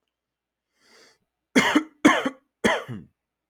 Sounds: Cough